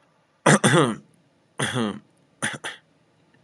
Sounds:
Throat clearing